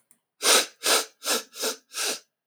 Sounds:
Sniff